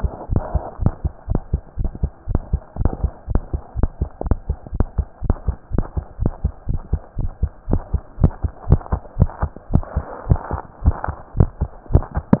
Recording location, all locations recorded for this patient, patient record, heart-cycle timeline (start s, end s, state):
tricuspid valve (TV)
aortic valve (AV)+pulmonary valve (PV)+tricuspid valve (TV)+mitral valve (MV)
#Age: Child
#Sex: Female
#Height: 115.0 cm
#Weight: 18.9 kg
#Pregnancy status: False
#Murmur: Absent
#Murmur locations: nan
#Most audible location: nan
#Systolic murmur timing: nan
#Systolic murmur shape: nan
#Systolic murmur grading: nan
#Systolic murmur pitch: nan
#Systolic murmur quality: nan
#Diastolic murmur timing: nan
#Diastolic murmur shape: nan
#Diastolic murmur grading: nan
#Diastolic murmur pitch: nan
#Diastolic murmur quality: nan
#Outcome: Normal
#Campaign: 2015 screening campaign
0.00	0.27	unannotated
0.27	0.44	S1
0.44	0.52	systole
0.52	0.62	S2
0.62	0.77	diastole
0.77	0.94	S1
0.94	1.02	systole
1.02	1.12	S2
1.12	1.26	diastole
1.26	1.42	S1
1.42	1.50	systole
1.50	1.60	S2
1.60	1.75	diastole
1.75	1.92	S1
1.92	2.00	systole
2.00	2.10	S2
2.10	2.25	diastole
2.25	2.42	S1
2.42	2.50	systole
2.50	2.60	S2
2.60	2.75	diastole
2.75	2.92	S1
2.92	3.02	systole
3.02	3.14	S2
3.14	3.26	diastole
3.26	3.42	S1
3.42	3.50	systole
3.50	3.60	S2
3.60	3.74	diastole
3.74	3.90	S1
3.90	3.99	systole
3.99	4.08	S2
4.08	4.22	diastole
4.22	4.38	S1
4.38	4.46	systole
4.46	4.56	S2
4.56	4.70	diastole
4.70	4.88	S1
4.88	4.96	systole
4.96	5.06	S2
5.06	5.19	diastole
5.19	5.40	S1
5.40	5.46	systole
5.46	5.56	S2
5.56	5.69	diastole
5.69	5.86	S1
5.86	5.94	systole
5.94	6.04	S2
6.04	6.17	diastole
6.17	6.34	S1
6.34	6.42	systole
6.42	6.52	S2
6.52	6.65	diastole
6.65	6.82	S1
6.82	6.90	systole
6.90	7.00	S2
7.00	7.15	diastole
7.15	7.32	S1
7.32	7.40	systole
7.40	7.50	S2
7.50	7.65	diastole
7.65	7.82	S1
7.82	7.92	systole
7.92	8.02	S2
8.02	8.17	diastole
8.17	8.32	S1
8.32	8.42	systole
8.42	8.52	S2
8.52	8.64	diastole
8.64	8.80	S1
8.80	8.90	systole
8.90	9.00	S2
9.00	9.18	diastole
9.18	9.30	S1
9.30	9.40	systole
9.40	9.50	S2
9.50	9.70	diastole
9.70	9.84	S1
9.84	9.94	systole
9.94	10.08	S2
10.08	10.24	diastole
10.24	10.42	S1
10.42	10.50	systole
10.50	10.64	S2
10.64	10.80	diastole
10.80	10.98	S1
10.98	11.07	systole
11.07	11.18	S2
11.18	11.34	diastole
11.34	11.52	S1
11.52	11.59	systole
11.59	11.70	S2
11.70	12.40	unannotated